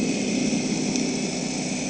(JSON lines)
{"label": "anthrophony, boat engine", "recorder": "HydroMoth"}